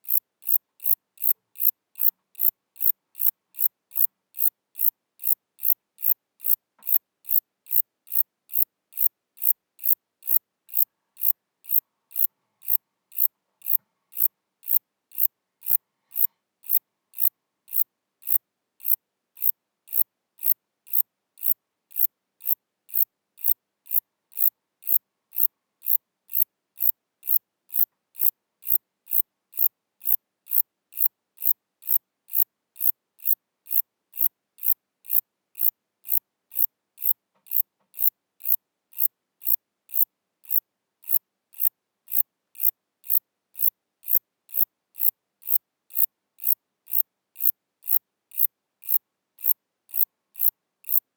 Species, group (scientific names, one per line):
Zeuneriana abbreviata
Orthoptera